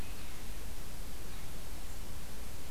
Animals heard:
forest ambience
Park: Acadia National Park